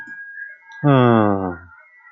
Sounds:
Sigh